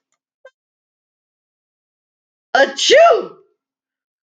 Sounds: Sneeze